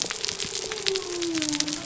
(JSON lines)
{"label": "biophony", "recorder": "SoundTrap 300"}